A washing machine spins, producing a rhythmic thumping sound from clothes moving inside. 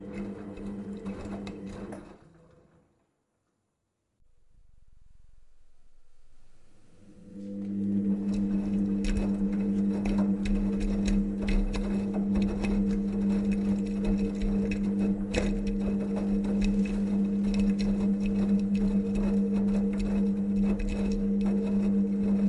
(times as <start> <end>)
0.0 2.6, 7.1 22.5